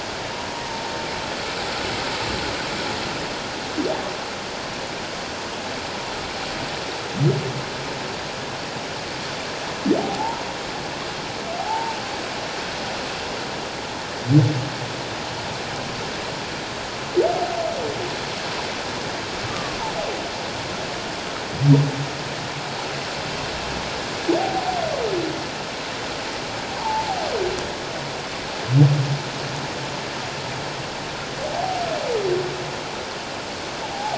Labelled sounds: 10.0	10.5	humpback whale, 0.78 to 1.0 kHz
11.6	12.0	humpback whale, 0.78 to 0.97 kHz
19.5	19.8	humpback whale, 1.0 to 1.3 kHz
26.8	27.3	humpback whale, 0.78 to 1.1 kHz

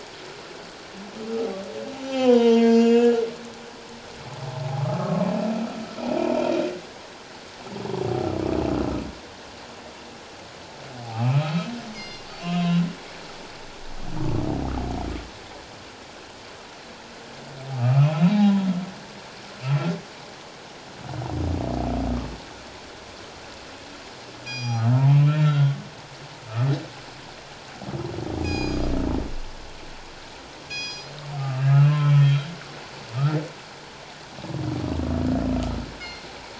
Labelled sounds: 2.0	3.2	humpback whale, 0.88 to 7.1 kHz
4.8	5.3	humpback whale, 0.94 to 1.3 kHz
6.3	6.6	humpback whale, 2.3 to 2.8 kHz
11.1	11.7	humpback whale, 1.1 to 3.9 kHz
11.9	12.3	killer whale, northern resident, G clan, call N24ii, 2.0 to 5.8 kHz
12.4	12.9	humpback whale, 2.4 to 3.9 kHz
17.7	18.5	humpback whale, 1.0 to 4.0 kHz
24.5	24.9	killer whale, northern resident, G clan, call N24ii, 2.4 to 5.8 kHz
25.1	25.8	humpback whale, 1.3 to 3.3 kHz
28.4	28.8	killer whale, northern resident, G clan, call N24ii, 2.3 to 7.6 kHz
30.7	31.7	killer whale, northern resident, G clan, call N24ii, 1.2 to 7.5 kHz
31.7	32.5	humpback whale, 1.0 to 4.0 kHz
36.0	36.2	killer whale, northern resident, G clan, call N24ii, 2.1 to 2.2 kHz

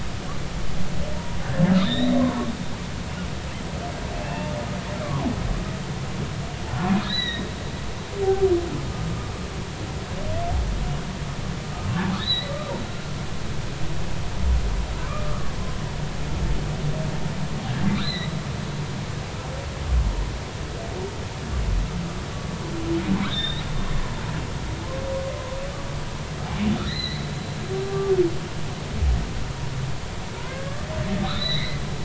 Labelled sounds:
1.7	2.5	humpback whale, 0.93 to 4.1 kHz
4.2	5.2	humpback whale, 0.93 to 2.8 kHz
7.0	7.5	humpback whale, 1.8 to 4.1 kHz
12.2	12.5	humpback whale, 1.7 to 4.3 kHz
17.9	18.3	humpback whale, 1.9 to 4.2 kHz
23.2	23.6	humpback whale, 3.2 to 3.9 kHz
26.9	27.3	humpback whale, 1.8 to 4.4 kHz
27.8	28.1	humpback whale, 1.1 to 1.2 kHz
30.4	30.8	humpback whale, 0.90 to 1.8 kHz
31.2	31.8	humpback whale, 1.8 to 4.2 kHz

